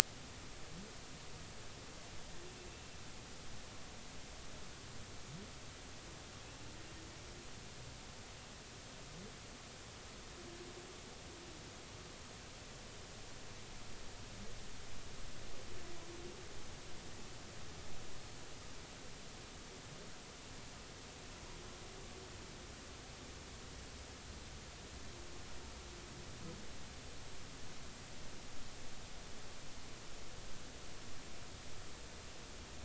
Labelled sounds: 2.7	3.0	humpback whale, 2.6 to 2.8 kHz

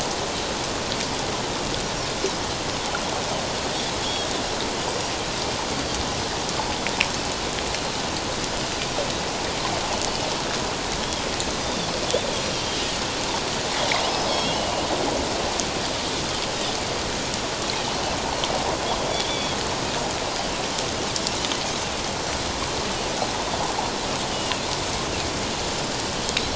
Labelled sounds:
4.0	4.4	Pacific white-sided dolphin, 3.2 to 3.8 kHz
11.5	11.9	Pacific white-sided dolphin, 3.3 to 6.3 kHz
14.0	14.9	Pacific white-sided dolphin, 2.6 to 5.2 kHz
19.1	19.6	Pacific white-sided dolphin, 3.2 to 3.6 kHz
24.3	24.7	Pacific white-sided dolphin, 2.5 to 3.0 kHz

